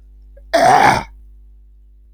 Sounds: Throat clearing